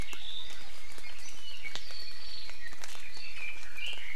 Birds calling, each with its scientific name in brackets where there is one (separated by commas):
Red-billed Leiothrix (Leiothrix lutea)